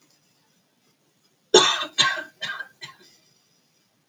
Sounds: Cough